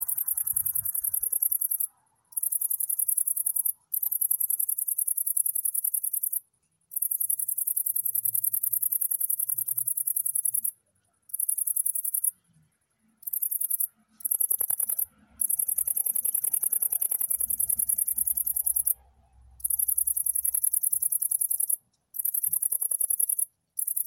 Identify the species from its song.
Tettigonia viridissima